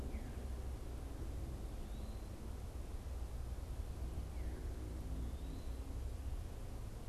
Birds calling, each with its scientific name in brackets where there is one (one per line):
Veery (Catharus fuscescens)
Eastern Wood-Pewee (Contopus virens)